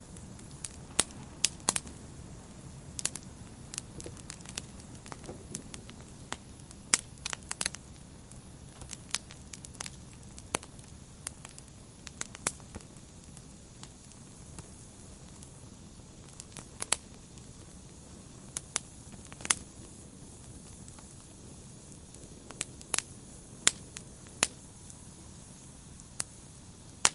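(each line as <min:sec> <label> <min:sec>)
0:00.0 Consistent, quiet fire crackling outdoors. 0:27.1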